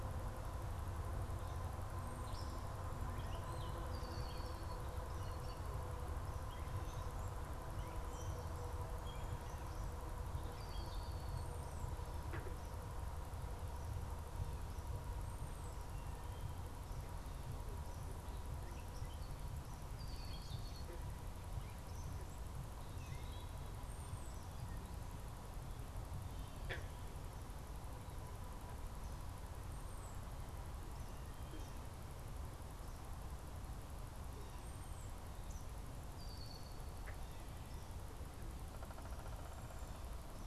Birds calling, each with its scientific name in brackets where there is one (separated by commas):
Gray Catbird (Dumetella carolinensis), Eastern Kingbird (Tyrannus tyrannus), Red-winged Blackbird (Agelaius phoeniceus), unidentified bird